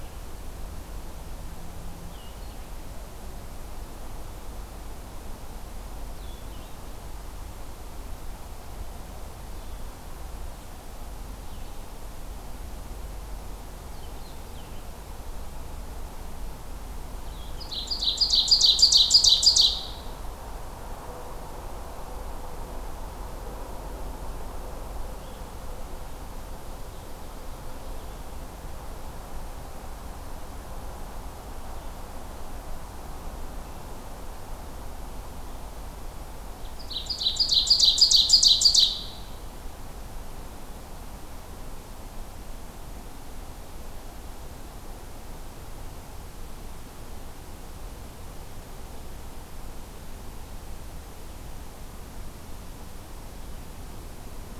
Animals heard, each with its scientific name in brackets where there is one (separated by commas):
Ovenbird (Seiurus aurocapilla), Blue-headed Vireo (Vireo solitarius)